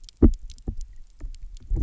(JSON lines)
{"label": "biophony, double pulse", "recorder": "SoundTrap 300"}